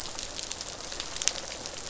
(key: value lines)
label: biophony, rattle response
recorder: SoundTrap 500